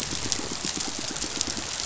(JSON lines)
{"label": "biophony, pulse", "recorder": "SoundTrap 500"}